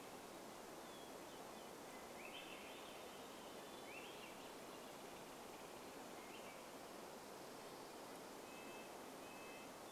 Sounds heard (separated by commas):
Hermit Thrush song, Red-breasted Nuthatch song, Swainson's Thrush call, Dark-eyed Junco song, Swainson's Thrush song, Douglas squirrel rattle